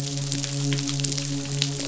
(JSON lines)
{"label": "biophony, midshipman", "recorder": "SoundTrap 500"}